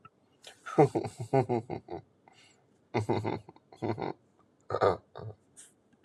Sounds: Laughter